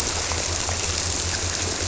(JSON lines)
{"label": "biophony", "recorder": "SoundTrap 300"}